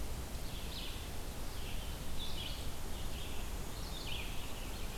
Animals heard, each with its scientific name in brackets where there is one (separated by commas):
Red-eyed Vireo (Vireo olivaceus)